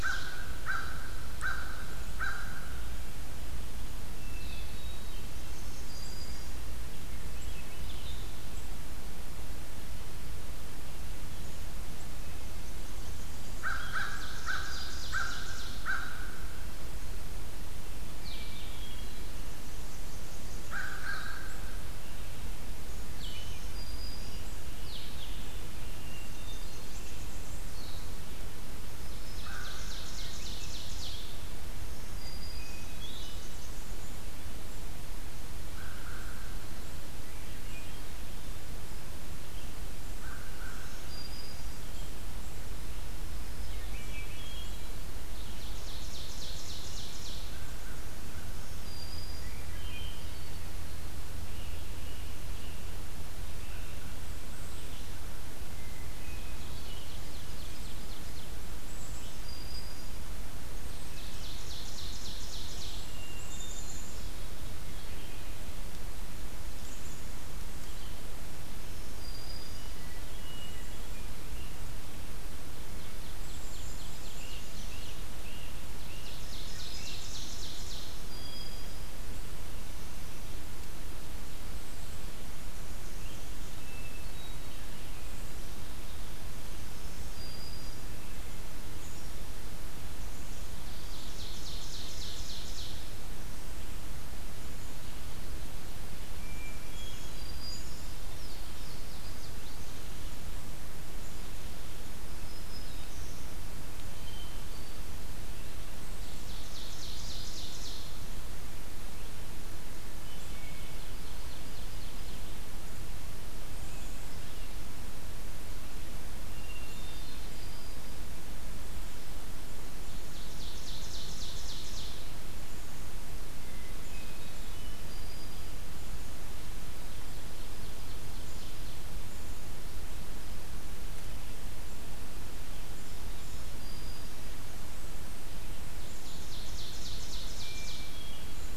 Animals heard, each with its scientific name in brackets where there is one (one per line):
American Crow (Corvus brachyrhynchos)
Great Crested Flycatcher (Myiarchus crinitus)
Blue-headed Vireo (Vireo solitarius)
Blackburnian Warbler (Setophaga fusca)
Black-capped Chickadee (Poecile atricapillus)
Black-throated Green Warbler (Setophaga virens)
Louisiana Waterthrush (Parkesia motacilla)
Hermit Thrush (Catharus guttatus)
Swainson's Thrush (Catharus ustulatus)
Ovenbird (Seiurus aurocapilla)